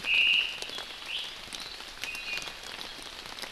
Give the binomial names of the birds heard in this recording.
Myadestes obscurus, Drepanis coccinea